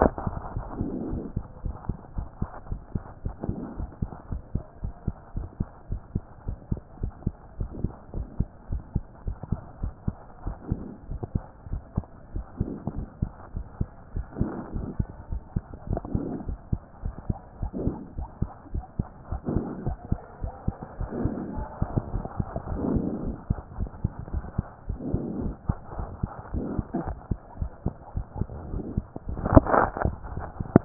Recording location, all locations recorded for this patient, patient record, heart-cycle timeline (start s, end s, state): mitral valve (MV)
aortic valve (AV)+pulmonary valve (PV)+tricuspid valve (TV)+mitral valve (MV)
#Age: Child
#Sex: Male
#Height: 125.0 cm
#Weight: 25.4 kg
#Pregnancy status: False
#Murmur: Absent
#Murmur locations: nan
#Most audible location: nan
#Systolic murmur timing: nan
#Systolic murmur shape: nan
#Systolic murmur grading: nan
#Systolic murmur pitch: nan
#Systolic murmur quality: nan
#Diastolic murmur timing: nan
#Diastolic murmur shape: nan
#Diastolic murmur grading: nan
#Diastolic murmur pitch: nan
#Diastolic murmur quality: nan
#Outcome: Abnormal
#Campaign: 2014 screening campaign
0.00	0.12	S1
0.12	0.26	systole
0.26	0.38	S2
0.38	0.54	diastole
0.54	0.64	S1
0.64	0.78	systole
0.78	0.90	S2
0.90	1.10	diastole
1.10	1.22	S1
1.22	1.36	systole
1.36	1.44	S2
1.44	1.64	diastole
1.64	1.76	S1
1.76	1.88	systole
1.88	1.96	S2
1.96	2.16	diastole
2.16	2.28	S1
2.28	2.40	systole
2.40	2.48	S2
2.48	2.70	diastole
2.70	2.80	S1
2.80	2.94	systole
2.94	3.04	S2
3.04	3.24	diastole
3.24	3.34	S1
3.34	3.46	systole
3.46	3.58	S2
3.58	3.78	diastole
3.78	3.88	S1
3.88	4.00	systole
4.00	4.10	S2
4.10	4.30	diastole
4.30	4.42	S1
4.42	4.54	systole
4.54	4.64	S2
4.64	4.82	diastole
4.82	4.92	S1
4.92	5.06	systole
5.06	5.14	S2
5.14	5.36	diastole
5.36	5.48	S1
5.48	5.58	systole
5.58	5.68	S2
5.68	5.90	diastole
5.90	6.00	S1
6.00	6.14	systole
6.14	6.22	S2
6.22	6.46	diastole
6.46	6.58	S1
6.58	6.70	systole
6.70	6.80	S2
6.80	7.02	diastole
7.02	7.12	S1
7.12	7.24	systole
7.24	7.34	S2
7.34	7.58	diastole
7.58	7.70	S1
7.70	7.82	systole
7.82	7.92	S2
7.92	8.14	diastole
8.14	8.26	S1
8.26	8.38	systole
8.38	8.48	S2
8.48	8.70	diastole
8.70	8.82	S1
8.82	8.94	systole
8.94	9.04	S2
9.04	9.26	diastole
9.26	9.36	S1
9.36	9.50	systole
9.50	9.60	S2
9.60	9.82	diastole
9.82	9.92	S1
9.92	10.06	systole
10.06	10.16	S2
10.16	10.46	diastole
10.46	10.56	S1
10.56	10.70	systole
10.70	10.80	S2
10.80	11.10	diastole
11.10	11.20	S1
11.20	11.34	systole
11.34	11.42	S2
11.42	11.70	diastole
11.70	11.82	S1
11.82	11.96	systole
11.96	12.04	S2
12.04	12.34	diastole
12.34	12.44	S1
12.44	12.60	systole
12.60	12.70	S2
12.70	12.96	diastole
12.96	13.06	S1
13.06	13.20	systole
13.20	13.30	S2
13.30	13.54	diastole
13.54	13.66	S1
13.66	13.80	systole
13.80	13.88	S2
13.88	14.14	diastole
14.14	14.26	S1
14.26	14.40	systole
14.40	14.52	S2
14.52	14.74	diastole
14.74	14.88	S1
14.88	14.98	systole
14.98	15.08	S2
15.08	15.30	diastole
15.30	15.42	S1
15.42	15.54	systole
15.54	15.62	S2
15.62	15.88	diastole
15.88	16.02	S1
16.02	16.14	systole
16.14	16.26	S2
16.26	16.46	diastole
16.46	16.58	S1
16.58	16.72	systole
16.72	16.80	S2
16.80	17.04	diastole
17.04	17.14	S1
17.14	17.28	systole
17.28	17.36	S2
17.36	17.60	diastole
17.60	17.72	S1
17.72	17.84	systole
17.84	17.96	S2
17.96	18.18	diastole
18.18	18.28	S1
18.28	18.40	systole
18.40	18.50	S2
18.50	18.72	diastole
18.72	18.84	S1
18.84	18.98	systole
18.98	19.06	S2
19.06	19.30	diastole
19.30	19.40	S1
19.40	19.52	systole
19.52	19.64	S2
19.64	19.86	diastole
19.86	19.96	S1
19.96	20.10	systole
20.10	20.20	S2
20.20	20.42	diastole
20.42	20.52	S1
20.52	20.66	systole
20.66	20.76	S2
20.76	21.02	diastole
21.02	21.10	S1
21.10	21.22	systole
21.22	21.36	S2
21.36	21.56	diastole
21.56	21.66	S1
21.66	21.80	systole
21.80	21.88	S2
21.88	22.14	diastole
22.14	22.24	S1
22.24	22.38	systole
22.38	22.46	S2
22.46	22.58	diastole